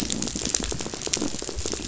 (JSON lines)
{"label": "biophony, rattle", "recorder": "SoundTrap 500"}